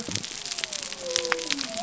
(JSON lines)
{"label": "biophony", "recorder": "SoundTrap 300"}